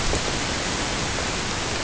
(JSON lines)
{"label": "ambient", "recorder": "HydroMoth"}